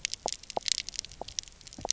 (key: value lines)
label: biophony, pulse
recorder: SoundTrap 300